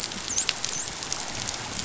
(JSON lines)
{"label": "biophony, dolphin", "recorder": "SoundTrap 500"}